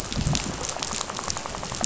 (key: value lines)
label: biophony, rattle
recorder: SoundTrap 500